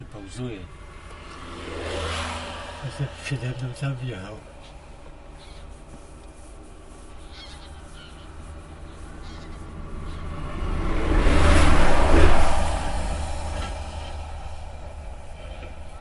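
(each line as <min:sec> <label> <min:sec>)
0:00.0 Two men speak quietly and intermittently inside a parked car, with occasional passing vehicles and distant birds calling in the background. 0:16.0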